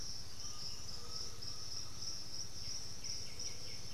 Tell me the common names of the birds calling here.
Piratic Flycatcher, Undulated Tinamou, White-winged Becard